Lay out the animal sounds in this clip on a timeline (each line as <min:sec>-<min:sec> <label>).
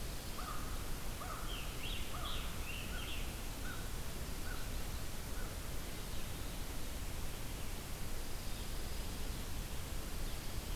0:00.0-0:05.8 American Crow (Corvus brachyrhynchos)
0:01.3-0:03.6 Scarlet Tanager (Piranga olivacea)
0:08.0-0:09.4 Pine Warbler (Setophaga pinus)